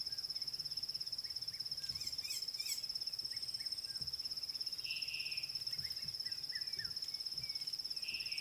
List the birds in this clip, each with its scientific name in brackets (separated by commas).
White-rumped Shrike (Eurocephalus ruppelli), Slate-colored Boubou (Laniarius funebris), Red-chested Cuckoo (Cuculus solitarius)